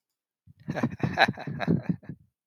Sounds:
Laughter